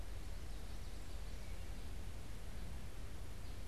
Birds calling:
Common Yellowthroat (Geothlypis trichas)

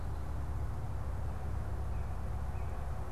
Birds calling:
Northern Cardinal (Cardinalis cardinalis)

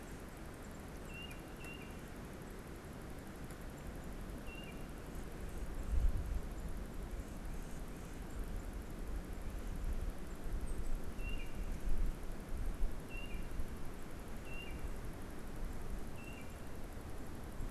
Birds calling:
Tufted Titmouse (Baeolophus bicolor)

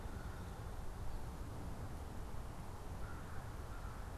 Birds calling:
American Crow (Corvus brachyrhynchos)

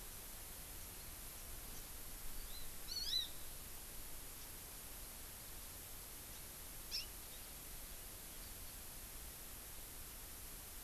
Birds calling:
Hawaii Amakihi (Chlorodrepanis virens)

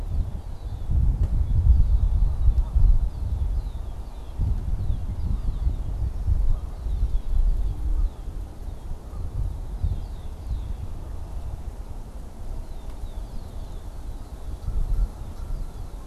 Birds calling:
Red-winged Blackbird (Agelaius phoeniceus)

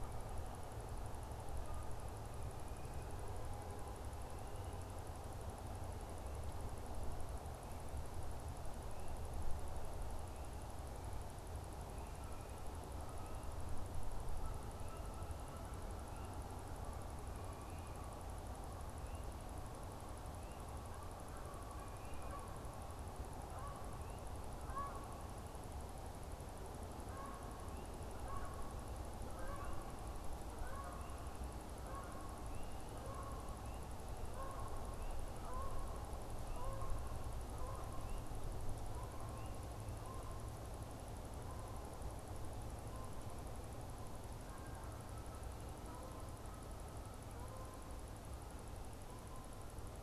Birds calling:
Canada Goose (Branta canadensis)

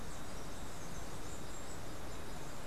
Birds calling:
Black-capped Tanager (Stilpnia heinei)

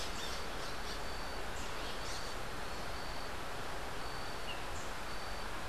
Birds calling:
Red-crowned Ant-Tanager (Habia rubica)

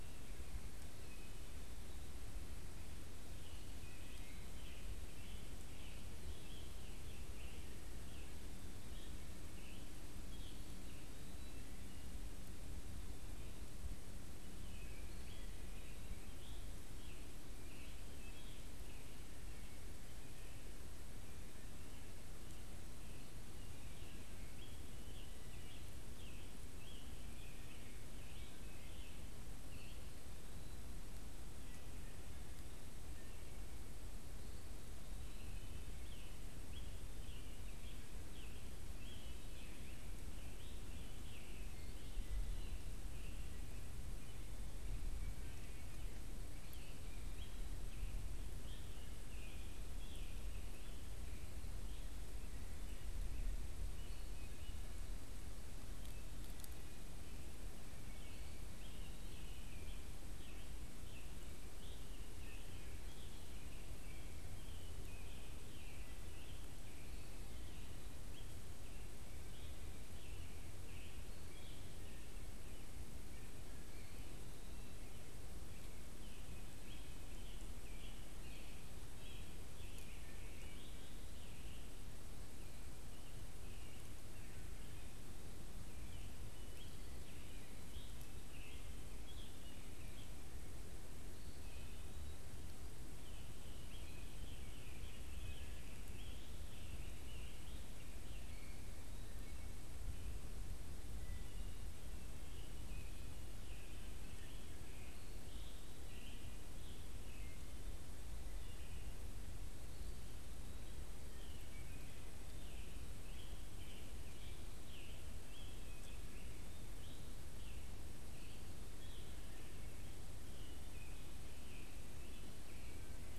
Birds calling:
Scarlet Tanager (Piranga olivacea)
Eastern Wood-Pewee (Contopus virens)
Wood Thrush (Hylocichla mustelina)

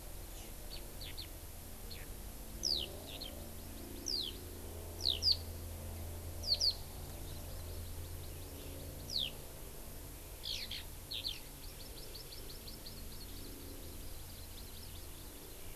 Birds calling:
Hawaii Amakihi (Chlorodrepanis virens)
Eurasian Skylark (Alauda arvensis)

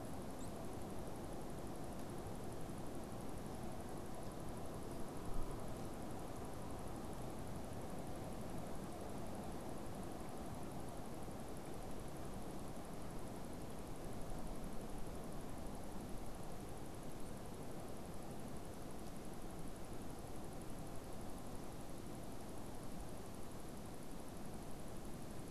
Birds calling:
unidentified bird

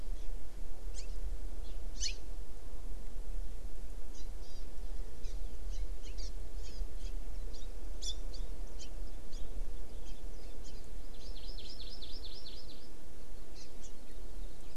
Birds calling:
Hawaii Amakihi (Chlorodrepanis virens)

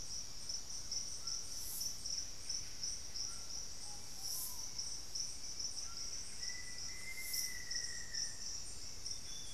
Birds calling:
Amazonian Grosbeak (Cyanoloxia rothschildii)
Ruddy Pigeon (Patagioenas subvinacea)
Screaming Piha (Lipaugus vociferans)
Black-faced Antthrush (Formicarius analis)
White-throated Toucan (Ramphastos tucanus)
Hauxwell's Thrush (Turdus hauxwelli)
Buff-breasted Wren (Cantorchilus leucotis)

